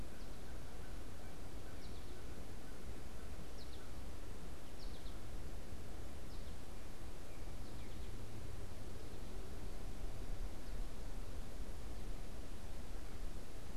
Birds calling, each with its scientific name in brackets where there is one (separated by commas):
American Goldfinch (Spinus tristis), American Crow (Corvus brachyrhynchos)